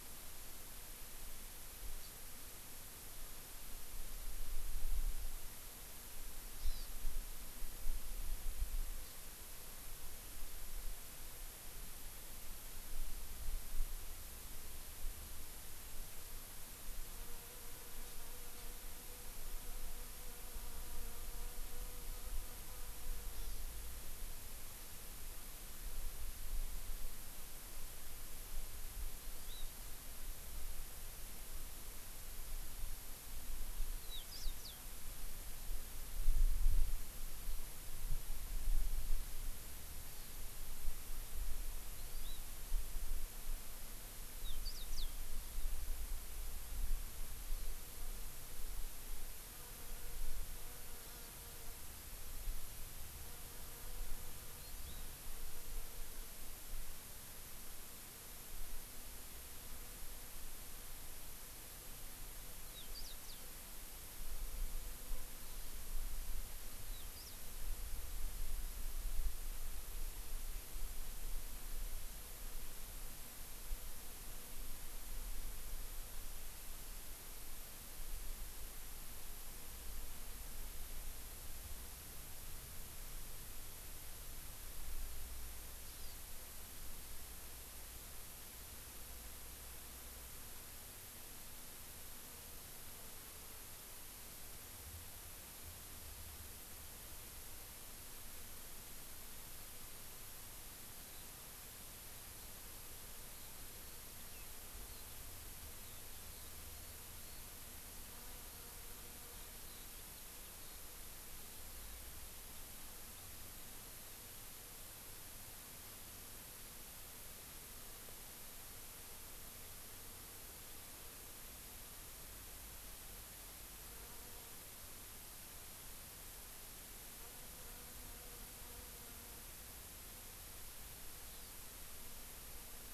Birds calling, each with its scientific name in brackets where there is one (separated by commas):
Eurasian Skylark (Alauda arvensis), Hawaii Amakihi (Chlorodrepanis virens), House Finch (Haemorhous mexicanus)